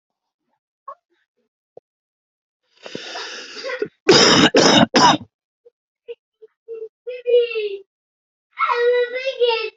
{"expert_labels": [{"quality": "ok", "cough_type": "wet", "dyspnea": false, "wheezing": false, "stridor": false, "choking": false, "congestion": false, "nothing": true, "diagnosis": "lower respiratory tract infection", "severity": "mild"}], "age": 35, "gender": "male", "respiratory_condition": true, "fever_muscle_pain": false, "status": "COVID-19"}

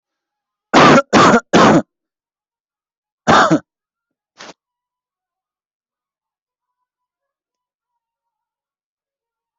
{"expert_labels": [{"quality": "good", "cough_type": "dry", "dyspnea": false, "wheezing": false, "stridor": false, "choking": false, "congestion": false, "nothing": true, "diagnosis": "upper respiratory tract infection", "severity": "mild"}], "age": 20, "gender": "male", "respiratory_condition": false, "fever_muscle_pain": false, "status": "symptomatic"}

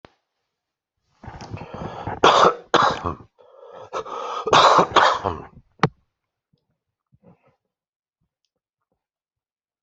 {"expert_labels": [{"quality": "ok", "cough_type": "dry", "dyspnea": false, "wheezing": false, "stridor": false, "choking": false, "congestion": false, "nothing": true, "diagnosis": "lower respiratory tract infection", "severity": "mild"}, {"quality": "ok", "cough_type": "dry", "dyspnea": false, "wheezing": false, "stridor": false, "choking": false, "congestion": false, "nothing": true, "diagnosis": "COVID-19", "severity": "mild"}, {"quality": "good", "cough_type": "dry", "dyspnea": false, "wheezing": false, "stridor": false, "choking": false, "congestion": false, "nothing": true, "diagnosis": "upper respiratory tract infection", "severity": "mild"}, {"quality": "good", "cough_type": "dry", "dyspnea": false, "wheezing": false, "stridor": false, "choking": false, "congestion": true, "nothing": false, "diagnosis": "upper respiratory tract infection"}], "age": 55, "gender": "other", "respiratory_condition": true, "fever_muscle_pain": true, "status": "COVID-19"}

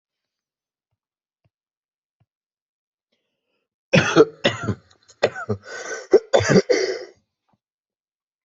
{"expert_labels": [{"quality": "ok", "dyspnea": false, "wheezing": false, "stridor": true, "choking": false, "congestion": false, "nothing": false, "diagnosis": "obstructive lung disease", "severity": "mild"}], "age": 26, "gender": "male", "respiratory_condition": false, "fever_muscle_pain": false, "status": "healthy"}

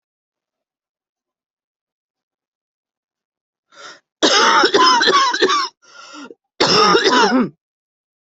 {"expert_labels": [{"quality": "good", "cough_type": "dry", "dyspnea": false, "wheezing": false, "stridor": false, "choking": false, "congestion": false, "nothing": true, "diagnosis": "COVID-19", "severity": "severe"}], "age": 42, "gender": "female", "respiratory_condition": true, "fever_muscle_pain": false, "status": "symptomatic"}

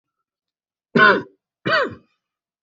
{"expert_labels": [{"quality": "good", "cough_type": "dry", "dyspnea": false, "wheezing": false, "stridor": false, "choking": false, "congestion": false, "nothing": true, "diagnosis": "upper respiratory tract infection", "severity": "mild"}], "age": 37, "gender": "male", "respiratory_condition": false, "fever_muscle_pain": false, "status": "symptomatic"}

